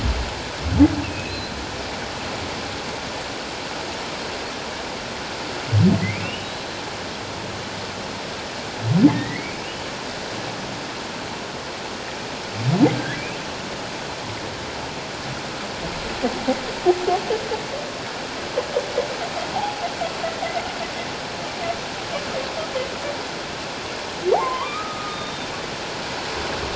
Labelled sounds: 1.0	1.5	humpback whale, 2.5 to 4.2 kHz
6.0	6.5	humpback whale, 1.9 to 3.0 kHz
9.1	9.6	humpback whale, 1.8 to 2.6 kHz
12.9	13.2	humpback whale, 1.5 to 1.8 kHz
24.3	25.5	humpback whale, 0.78 to 3.8 kHz

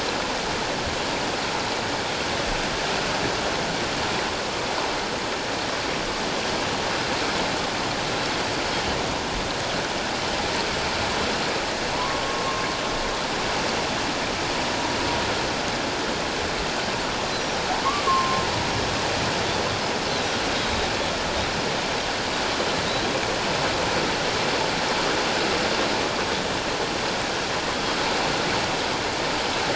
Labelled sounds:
11.9	12.4	humpback whale, 0.91 to 1.2 kHz
18.1	18.4	humpback whale, 1.0 to 1.2 kHz
20.5	20.9	Pacific white-sided dolphin, 3.7 to 3.9 kHz

